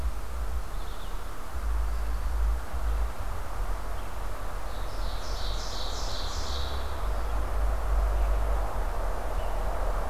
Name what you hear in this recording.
Red-eyed Vireo, Ovenbird